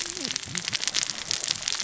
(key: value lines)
label: biophony, cascading saw
recorder: SoundTrap 600 or HydroMoth